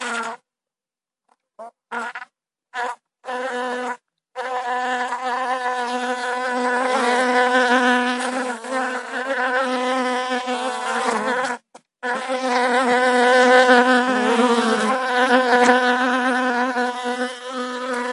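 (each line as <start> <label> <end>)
0.0 A bee flies quickly around. 0.4
1.6 A bee flies around intermittently. 2.3
2.7 A bee flies around buzzing. 4.0
4.4 Bees are flying and buzzing continuously near the hive. 11.6
12.0 Bees are buzzing and flying closely and continuously. 18.1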